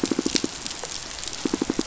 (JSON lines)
{"label": "biophony, pulse", "recorder": "SoundTrap 500"}